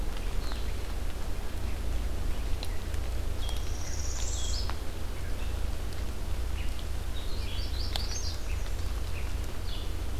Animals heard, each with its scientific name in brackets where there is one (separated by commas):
Magnolia Warbler (Setophaga magnolia), Northern Parula (Setophaga americana), Red-eyed Vireo (Vireo olivaceus), American Redstart (Setophaga ruticilla)